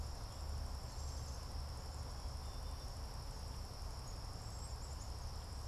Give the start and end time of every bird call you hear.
[0.00, 5.67] Black-capped Chickadee (Poecile atricapillus)
[0.63, 5.03] Cedar Waxwing (Bombycilla cedrorum)

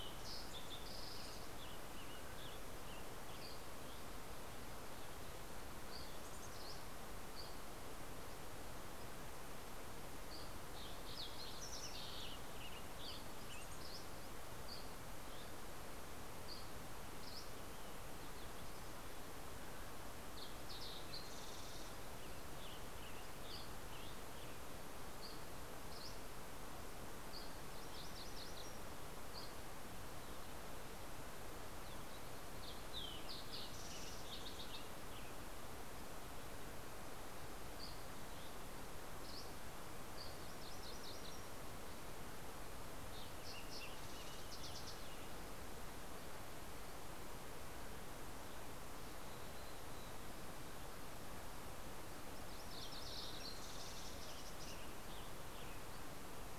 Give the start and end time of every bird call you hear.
[0.60, 4.10] Western Tanager (Piranga ludoviciana)
[3.20, 4.10] Dusky Flycatcher (Empidonax oberholseri)
[5.20, 8.10] Dusky Flycatcher (Empidonax oberholseri)
[5.80, 7.10] Mountain Chickadee (Poecile gambeli)
[9.60, 12.40] Fox Sparrow (Passerella iliaca)
[9.60, 14.00] Western Tanager (Piranga ludoviciana)
[12.70, 17.80] Dusky Flycatcher (Empidonax oberholseri)
[13.30, 14.40] Mountain Chickadee (Poecile gambeli)
[19.60, 22.10] Fox Sparrow (Passerella iliaca)
[21.30, 25.00] Western Tanager (Piranga ludoviciana)
[23.10, 27.50] Dusky Flycatcher (Empidonax oberholseri)
[26.90, 29.10] MacGillivray's Warbler (Geothlypis tolmiei)
[28.90, 29.80] Dusky Flycatcher (Empidonax oberholseri)
[31.50, 34.90] Fox Sparrow (Passerella iliaca)
[33.00, 35.70] Western Tanager (Piranga ludoviciana)
[37.00, 40.40] Dusky Flycatcher (Empidonax oberholseri)
[40.00, 41.90] MacGillivray's Warbler (Geothlypis tolmiei)
[42.50, 46.20] Fox Sparrow (Passerella iliaca)
[42.80, 46.00] Western Tanager (Piranga ludoviciana)
[48.00, 51.10] Mountain Chickadee (Poecile gambeli)
[51.50, 53.80] MacGillivray's Warbler (Geothlypis tolmiei)
[51.70, 55.10] Fox Sparrow (Passerella iliaca)
[52.90, 56.50] Western Tanager (Piranga ludoviciana)

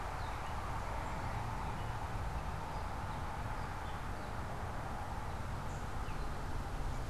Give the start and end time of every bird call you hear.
[0.00, 6.97] Northern Waterthrush (Parkesia noveboracensis)

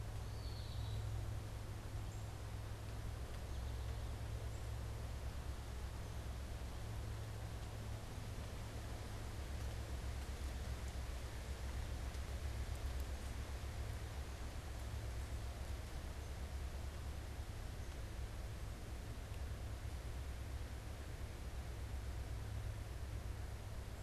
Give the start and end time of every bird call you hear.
[0.21, 1.11] Eastern Wood-Pewee (Contopus virens)

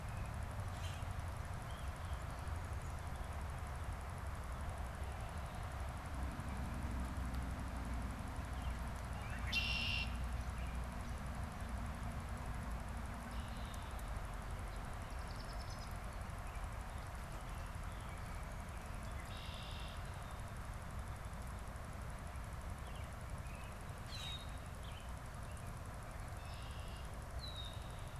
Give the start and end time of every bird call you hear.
[0.50, 1.30] Common Grackle (Quiscalus quiscula)
[8.20, 11.00] American Robin (Turdus migratorius)
[9.00, 10.30] Red-winged Blackbird (Agelaius phoeniceus)
[12.90, 14.00] Red-winged Blackbird (Agelaius phoeniceus)
[14.50, 16.20] Red-winged Blackbird (Agelaius phoeniceus)
[19.10, 20.30] Red-winged Blackbird (Agelaius phoeniceus)
[22.50, 26.20] American Robin (Turdus migratorius)
[23.90, 24.50] Red-winged Blackbird (Agelaius phoeniceus)
[26.00, 28.10] Red-winged Blackbird (Agelaius phoeniceus)

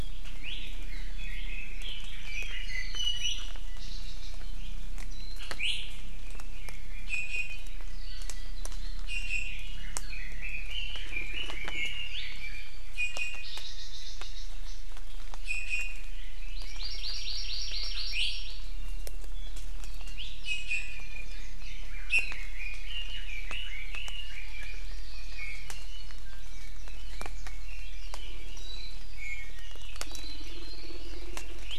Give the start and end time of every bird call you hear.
[0.31, 0.71] Iiwi (Drepanis coccinea)
[1.11, 3.01] Red-billed Leiothrix (Leiothrix lutea)
[2.71, 3.61] Iiwi (Drepanis coccinea)
[5.11, 5.41] Warbling White-eye (Zosterops japonicus)
[5.61, 5.91] Iiwi (Drepanis coccinea)
[5.91, 7.01] Red-billed Leiothrix (Leiothrix lutea)
[7.11, 7.61] Iiwi (Drepanis coccinea)
[9.01, 9.71] Iiwi (Drepanis coccinea)
[9.71, 12.21] Red-billed Leiothrix (Leiothrix lutea)
[12.91, 13.51] Iiwi (Drepanis coccinea)
[15.41, 16.11] Iiwi (Drepanis coccinea)
[16.51, 18.61] Hawaii Amakihi (Chlorodrepanis virens)
[18.11, 18.41] Iiwi (Drepanis coccinea)
[20.41, 21.21] Iiwi (Drepanis coccinea)
[22.11, 22.31] Iiwi (Drepanis coccinea)
[22.31, 24.91] Red-billed Leiothrix (Leiothrix lutea)
[24.21, 25.71] Hawaii Amakihi (Chlorodrepanis virens)
[25.31, 26.31] Iiwi (Drepanis coccinea)
[26.21, 28.61] Red-billed Leiothrix (Leiothrix lutea)
[28.51, 29.01] Warbling White-eye (Zosterops japonicus)
[29.11, 29.71] Iiwi (Drepanis coccinea)
[30.01, 30.51] Warbling White-eye (Zosterops japonicus)

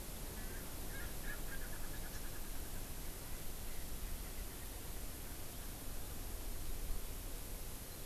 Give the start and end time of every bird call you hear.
[0.30, 2.90] Erckel's Francolin (Pternistis erckelii)

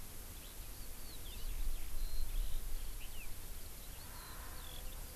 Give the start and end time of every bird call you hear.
[0.00, 5.15] Eurasian Skylark (Alauda arvensis)
[1.28, 1.58] Hawaii Amakihi (Chlorodrepanis virens)

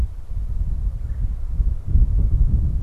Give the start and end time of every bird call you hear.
[0.67, 1.67] Red-bellied Woodpecker (Melanerpes carolinus)

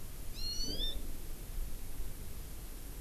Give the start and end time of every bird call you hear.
[0.38, 0.98] Hawaii Amakihi (Chlorodrepanis virens)

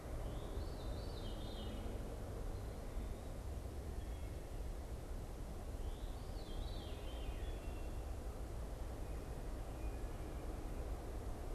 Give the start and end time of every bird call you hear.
[0.00, 11.54] Veery (Catharus fuscescens)

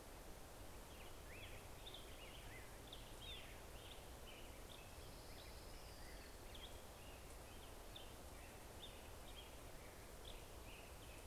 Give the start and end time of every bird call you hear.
[0.00, 11.27] Black-headed Grosbeak (Pheucticus melanocephalus)
[1.40, 6.40] American Robin (Turdus migratorius)
[4.70, 6.50] Orange-crowned Warbler (Leiothlypis celata)

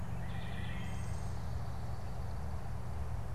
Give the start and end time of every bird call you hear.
[0.00, 1.50] Wood Thrush (Hylocichla mustelina)
[0.90, 2.60] unidentified bird

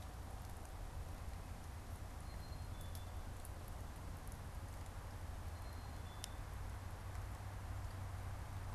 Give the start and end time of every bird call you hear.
[2.10, 3.20] Black-capped Chickadee (Poecile atricapillus)
[5.40, 6.50] Black-capped Chickadee (Poecile atricapillus)

